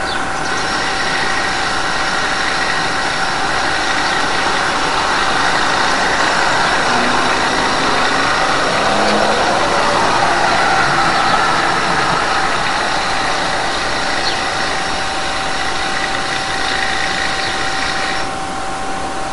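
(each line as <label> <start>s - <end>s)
A faint, rhythmic pounding or drilling sound with a metallic and repetitive quality. 0.0s - 19.3s
Birds chirping with varying high and low pitches. 0.0s - 19.3s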